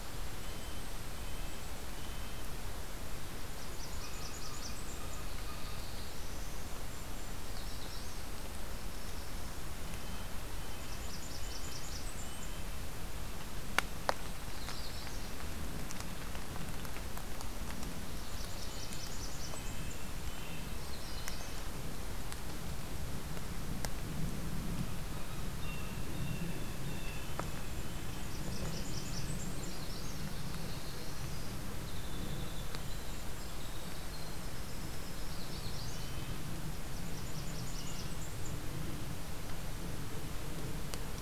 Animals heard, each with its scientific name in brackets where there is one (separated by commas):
Blue Jay (Cyanocitta cristata), Red-breasted Nuthatch (Sitta canadensis), Golden-crowned Kinglet (Regulus satrapa), Winter Wren (Troglodytes hiemalis), Magnolia Warbler (Setophaga magnolia), Blackburnian Warbler (Setophaga fusca)